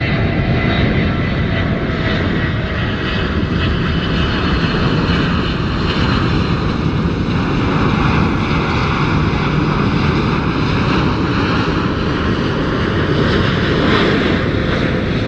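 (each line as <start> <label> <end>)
0.0 An airplane flies by at 300 meters altitude. 15.3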